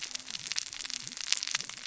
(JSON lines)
{"label": "biophony, cascading saw", "recorder": "SoundTrap 600 or HydroMoth"}